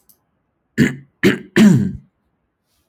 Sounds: Throat clearing